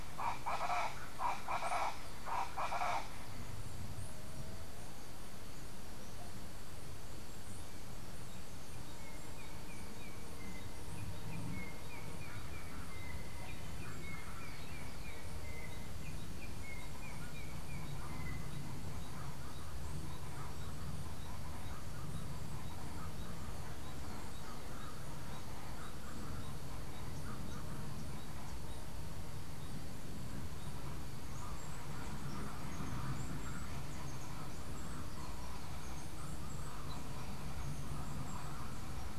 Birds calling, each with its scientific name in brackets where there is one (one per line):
Colombian Chachalaca (Ortalis columbiana)
Yellow-backed Oriole (Icterus chrysater)